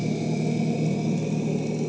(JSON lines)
{"label": "anthrophony, boat engine", "recorder": "HydroMoth"}